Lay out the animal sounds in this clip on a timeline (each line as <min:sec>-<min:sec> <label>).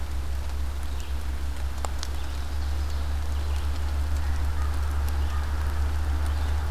0:00.0-0:06.7 Red-eyed Vireo (Vireo olivaceus)